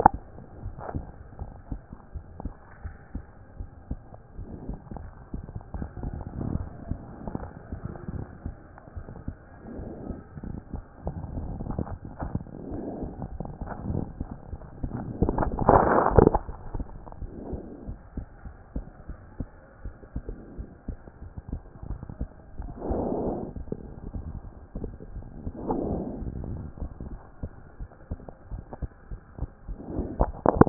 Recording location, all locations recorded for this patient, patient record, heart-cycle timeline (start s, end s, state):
pulmonary valve (PV)
aortic valve (AV)+pulmonary valve (PV)+tricuspid valve (TV)+mitral valve (MV)
#Age: Child
#Sex: Female
#Height: 106.0 cm
#Weight: 17.4 kg
#Pregnancy status: False
#Murmur: Absent
#Murmur locations: nan
#Most audible location: nan
#Systolic murmur timing: nan
#Systolic murmur shape: nan
#Systolic murmur grading: nan
#Systolic murmur pitch: nan
#Systolic murmur quality: nan
#Diastolic murmur timing: nan
#Diastolic murmur shape: nan
#Diastolic murmur grading: nan
#Diastolic murmur pitch: nan
#Diastolic murmur quality: nan
#Outcome: Abnormal
#Campaign: 2014 screening campaign
0.00	0.43	unannotated
0.43	0.64	diastole
0.64	0.73	S1
0.73	0.94	systole
0.94	1.04	S2
1.04	1.40	diastole
1.40	1.50	S1
1.50	1.70	systole
1.70	1.80	S2
1.80	2.14	diastole
2.14	2.24	S1
2.24	2.42	systole
2.42	2.52	S2
2.52	2.84	diastole
2.84	2.94	S1
2.94	3.14	systole
3.14	3.24	S2
3.24	3.58	diastole
3.58	3.68	S1
3.68	3.90	systole
3.90	4.00	S2
4.00	4.38	diastole
4.38	4.48	S1
4.48	4.68	systole
4.68	4.78	S2
4.78	4.94	diastole
4.94	30.69	unannotated